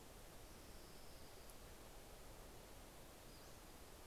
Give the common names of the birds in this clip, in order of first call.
Orange-crowned Warbler, Pacific-slope Flycatcher